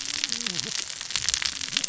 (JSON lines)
{"label": "biophony, cascading saw", "recorder": "SoundTrap 600 or HydroMoth"}